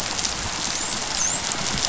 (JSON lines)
{"label": "biophony, dolphin", "recorder": "SoundTrap 500"}